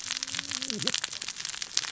{"label": "biophony, cascading saw", "recorder": "SoundTrap 600 or HydroMoth"}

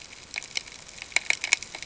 {"label": "ambient", "recorder": "HydroMoth"}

